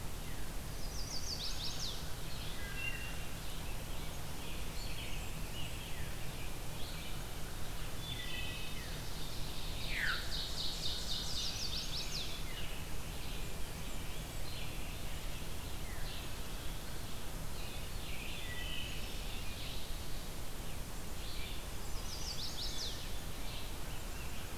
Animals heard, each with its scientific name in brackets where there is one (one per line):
Blackburnian Warbler (Setophaga fusca)
Veery (Catharus fuscescens)
Red-eyed Vireo (Vireo olivaceus)
Chestnut-sided Warbler (Setophaga pensylvanica)
American Crow (Corvus brachyrhynchos)
Ovenbird (Seiurus aurocapilla)
Wood Thrush (Hylocichla mustelina)